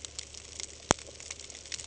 {"label": "ambient", "recorder": "HydroMoth"}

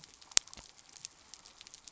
{"label": "biophony", "recorder": "SoundTrap 300"}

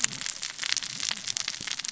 {"label": "biophony, cascading saw", "recorder": "SoundTrap 600 or HydroMoth"}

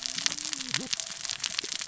{"label": "biophony, cascading saw", "recorder": "SoundTrap 600 or HydroMoth"}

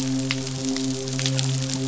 {"label": "biophony, midshipman", "recorder": "SoundTrap 500"}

